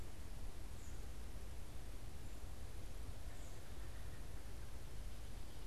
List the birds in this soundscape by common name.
Wood Thrush